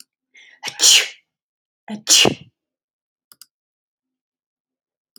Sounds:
Sneeze